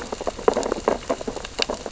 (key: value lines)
label: biophony, sea urchins (Echinidae)
recorder: SoundTrap 600 or HydroMoth